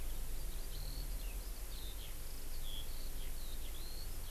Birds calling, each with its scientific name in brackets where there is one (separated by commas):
Eurasian Skylark (Alauda arvensis)